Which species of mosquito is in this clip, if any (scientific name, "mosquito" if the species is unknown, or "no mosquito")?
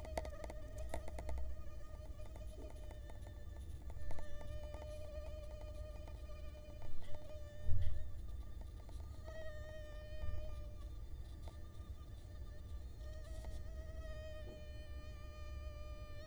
Culex quinquefasciatus